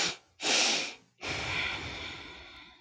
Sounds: Sigh